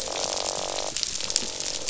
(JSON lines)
{"label": "biophony, croak", "recorder": "SoundTrap 500"}